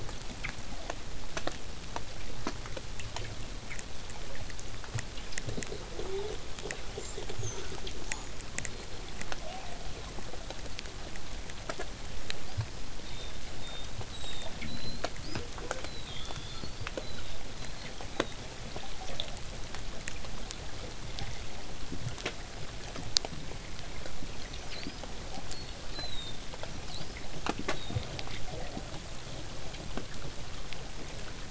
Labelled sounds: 7.0	9.9	killer whale, southern resident, 0.39 to 8.0 kHz
12.4	15.5	killer whale, southern resident, whistle, 3.4 to 8.0 kHz
15.8	18.4	killer whale, southern resident, whistle, 2.9 to 8.0 kHz
24.4	25.0	killer whale, southern resident, whistle, 3.8 to 6.1 kHz
25.5	26.4	killer whale, southern resident, whistle, 3.4 to 8.0 kHz
26.7	28.0	killer whale, southern resident, whistle, 3.5 to 8.0 kHz

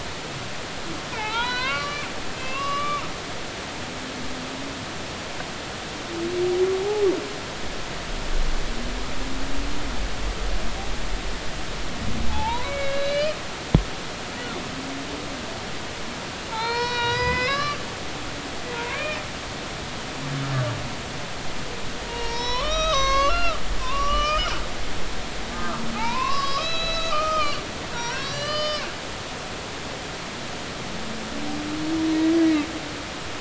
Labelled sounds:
1.1	2.0	humpback whale, 0.80 to 4.7 kHz
2.4	3.1	humpback whale, 0.93 to 4.0 kHz
12.3	13.4	humpback whale, 0.80 to 4.4 kHz
16.5	17.8	humpback whale, 0.83 to 5.9 kHz
18.7	19.2	humpback whale, 0.90 to 2.5 kHz
22.0	24.5	humpback whale, 0.86 to 6.8 kHz
25.5	27.6	humpback whale, 0.80 to 6.7 kHz
27.9	28.9	humpback whale, 0.90 to 6.0 kHz

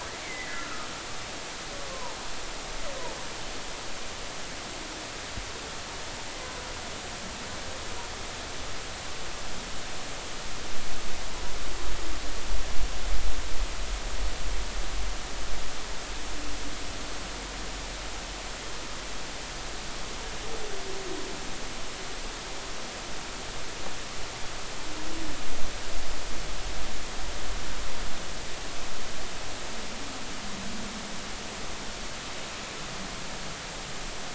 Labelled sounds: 0.2	0.9	humpback whale, 1.2 to 2.1 kHz
1.9	2.2	humpback whale, 0.83 to 1.1 kHz

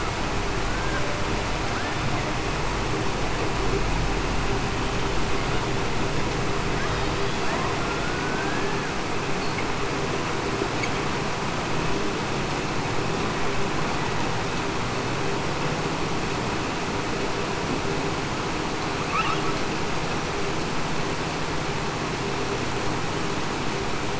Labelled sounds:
0.7	1.0	killer whale, Bigg's (transient), 1.5 to 1.6 kHz
8.0	8.7	killer whale, Bigg's (transient), 1.4 to 1.8 kHz

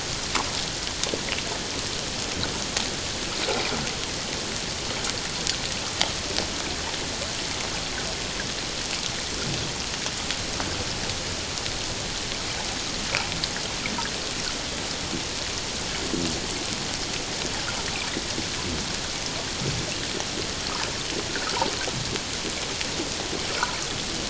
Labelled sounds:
21.3	21.5	water noise, 1.2 to 1.8 kHz

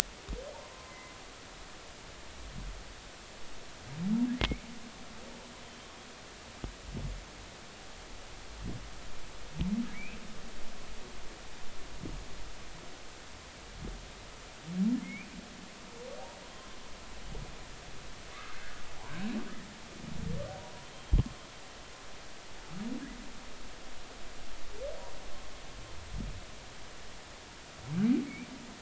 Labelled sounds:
0.7	1.2	humpback whale, 0.99 to 2.1 kHz
4.4	4.6	humpback whale, 2.0 to 2.5 kHz
9.9	10.2	humpback whale, 2.1 to 2.7 kHz
15.0	15.3	humpback whale, 2.0 to 2.6 kHz
16.5	16.8	humpback whale, 0.99 to 1.2 kHz
18.3	18.8	humpback whale, 1.1 to 1.8 kHz
20.6	20.9	humpback whale, 0.80 to 1.1 kHz

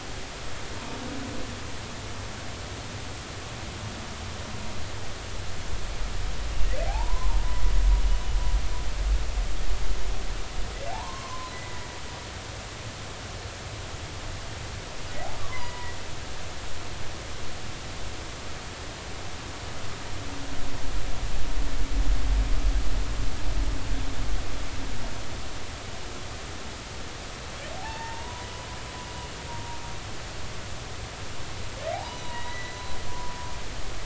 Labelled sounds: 6.9	7.3	humpback whale, 0.80 to 1.1 kHz
10.9	11.8	humpback whale, 0.80 to 2.0 kHz
15.4	15.9	humpback whale, 0.90 to 2.2 kHz
27.8	28.5	humpback whale, 0.80 to 1.9 kHz
31.9	32.8	humpback whale, 0.80 to 4.0 kHz

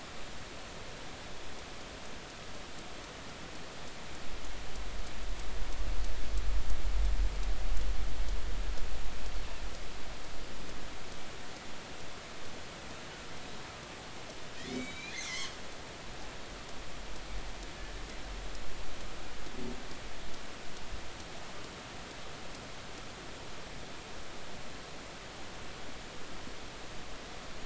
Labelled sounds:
14.6	15.5	killer whale, northern resident, G clan, call N48, 1.7 to 7.0 kHz

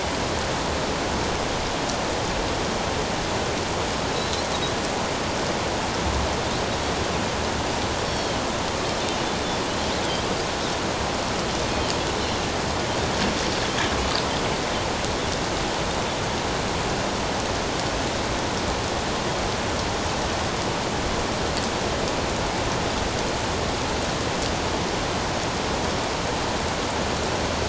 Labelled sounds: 4.1	4.5	Pacific white-sided dolphin, 3.8 to 4.2 kHz
8.1	8.4	Pacific white-sided dolphin, 3.1 to 4.6 kHz

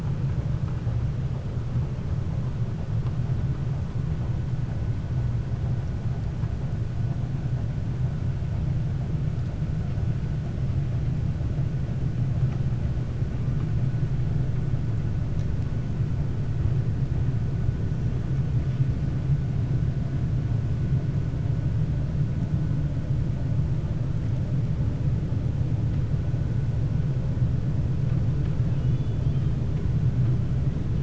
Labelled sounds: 28.7	29.5	killer whale, 2.4 to 4.5 kHz

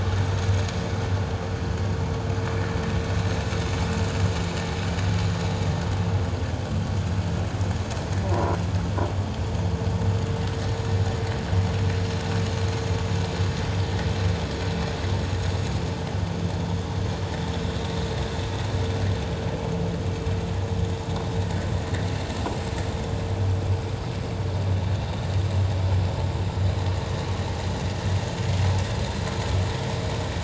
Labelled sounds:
8.3	8.6	croaking sound likely from a nearby submerged object, 0.94 to 1.1 kHz

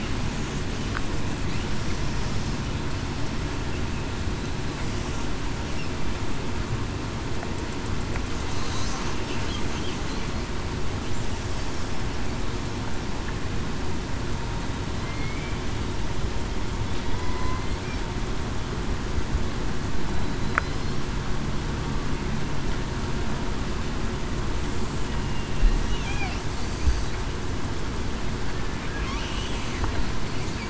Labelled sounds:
15.0	15.4	killer whale, southern resident, 2.1 to 2.2 kHz
17.1	17.6	killer whale, southern resident, 0.96 to 1.1 kHz

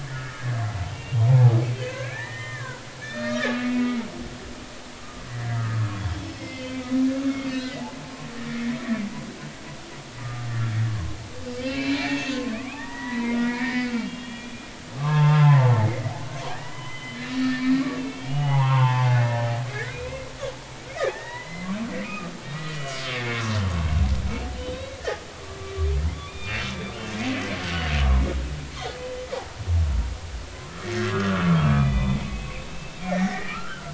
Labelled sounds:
0.0	4.0	humpback whale, 0.80 to 4.3 kHz
5.0	5.9	humpback whale, 1.1 to 1.4 kHz
6.4	7.8	humpback whale, 2.0 to 3.9 kHz
10.2	11.2	humpback whale, 0.99 to 1.9 kHz
11.6	15.7	humpback whale, 0.80 to 4.3 kHz
16.5	17.6	humpback whale, 1.6 to 3.1 kHz
18.0	20.1	humpback whale, 0.80 to 4.0 kHz
21.1	23.0	humpback whale, 0.90 to 3.0 kHz
24.7	25.0	humpback whale, 3.7 to 3.9 kHz
26.1	26.7	humpback whale, 2.2 to 3.7 kHz
29.3	29.6	humpback whale, 0.80 to 1.0 kHz
31.1	33.9	humpback whale, 1.0 to 3.6 kHz

